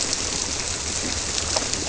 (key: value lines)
label: biophony
recorder: SoundTrap 300